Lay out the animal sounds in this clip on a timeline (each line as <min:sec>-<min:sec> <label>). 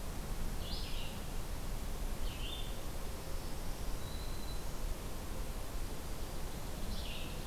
0:00.0-0:07.5 Red-eyed Vireo (Vireo olivaceus)
0:03.2-0:04.9 Black-throated Green Warbler (Setophaga virens)